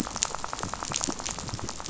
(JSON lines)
{"label": "biophony, rattle", "recorder": "SoundTrap 500"}